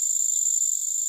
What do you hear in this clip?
Phyllopalpus pulchellus, an orthopteran